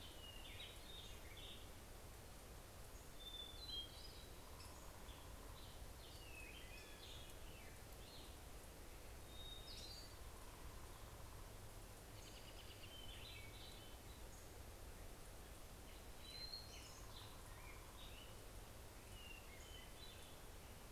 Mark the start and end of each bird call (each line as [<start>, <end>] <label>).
[0.00, 1.93] American Robin (Turdus migratorius)
[0.03, 1.73] Hermit Thrush (Catharus guttatus)
[2.23, 14.83] Black-headed Grosbeak (Pheucticus melanocephalus)
[3.23, 4.83] Hermit Thrush (Catharus guttatus)
[4.93, 9.03] American Robin (Turdus migratorius)
[6.33, 7.73] Hermit Thrush (Catharus guttatus)
[9.23, 10.63] Hermit Thrush (Catharus guttatus)
[11.63, 12.93] American Robin (Turdus migratorius)
[12.73, 14.33] Hermit Thrush (Catharus guttatus)
[15.03, 19.33] American Robin (Turdus migratorius)
[16.13, 17.23] Hermit Thrush (Catharus guttatus)
[18.43, 20.83] Hermit Thrush (Catharus guttatus)